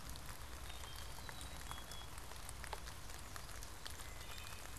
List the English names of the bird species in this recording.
Wood Thrush, Black-capped Chickadee, Nashville Warbler